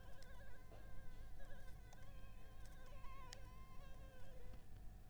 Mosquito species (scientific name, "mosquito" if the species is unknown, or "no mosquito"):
Anopheles arabiensis